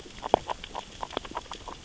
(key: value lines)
label: biophony, grazing
recorder: SoundTrap 600 or HydroMoth